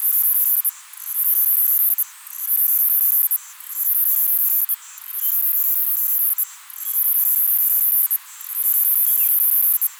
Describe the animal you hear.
Myopsalta mackinlayi, a cicada